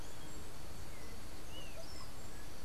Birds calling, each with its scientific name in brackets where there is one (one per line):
Andean Motmot (Momotus aequatorialis)